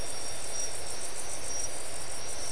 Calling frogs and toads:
none
3:30am

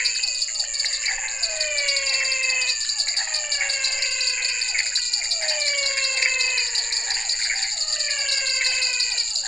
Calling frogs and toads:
dwarf tree frog, pointedbelly frog, menwig frog, Physalaemus cuvieri, Pithecopus azureus
7:15pm

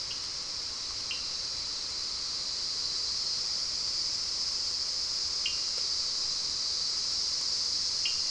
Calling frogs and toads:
Cochran's lime tree frog
6:15pm

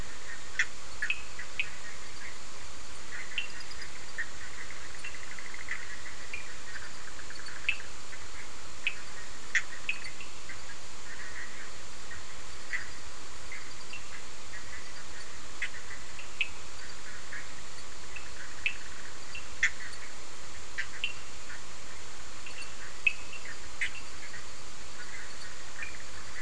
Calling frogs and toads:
Bischoff's tree frog, Cochran's lime tree frog
10:30pm

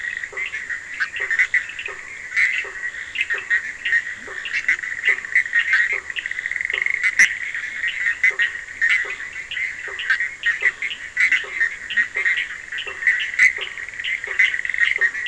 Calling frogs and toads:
Bischoff's tree frog, blacksmith tree frog, Leptodactylus latrans, Cochran's lime tree frog
12:00am

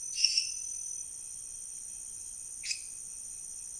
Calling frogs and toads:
lesser tree frog
1:15am

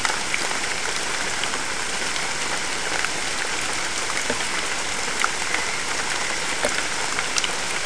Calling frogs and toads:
none
4:30am

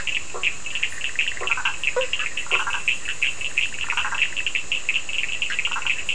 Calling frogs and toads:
Bischoff's tree frog, blacksmith tree frog, Cochran's lime tree frog, Burmeister's tree frog
11:00pm

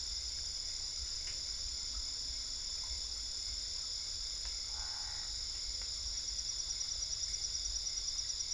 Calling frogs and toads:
Boana albopunctata
11:45pm

